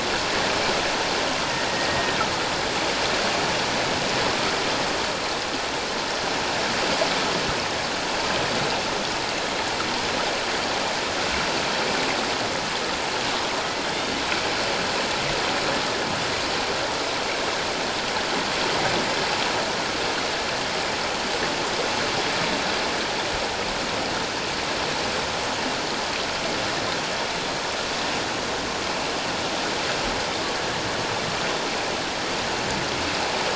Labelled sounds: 1.5	2.2	killer whale, Bigg's (transient), 1.8 to 2.0 kHz

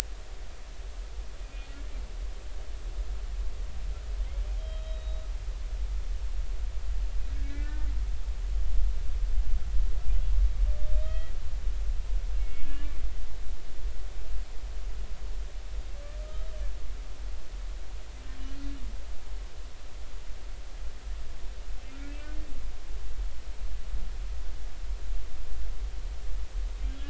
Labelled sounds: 1.4	1.7	humpback whale, 2.4 to 2.5 kHz
4.6	5.2	humpback whale, 3.1 to 3.9 kHz
7.3	7.9	humpback whale, 1.4 to 2.4 kHz
11.0	12.9	humpback whale, 1.2 to 3.3 kHz
26.8	27.0	humpback whale, 3.1 to 3.5 kHz

